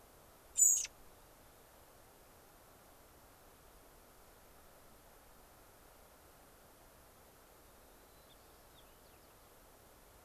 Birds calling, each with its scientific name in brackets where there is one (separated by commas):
American Robin (Turdus migratorius), White-crowned Sparrow (Zonotrichia leucophrys)